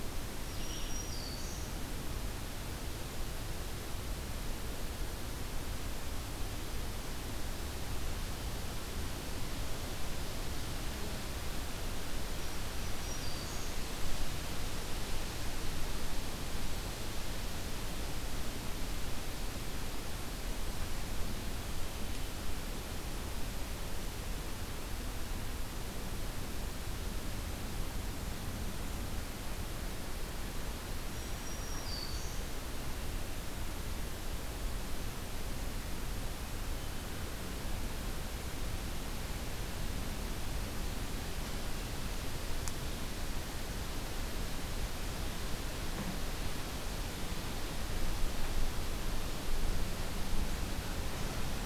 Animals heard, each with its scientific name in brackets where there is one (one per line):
Black-throated Green Warbler (Setophaga virens)